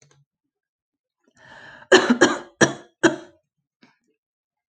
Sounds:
Cough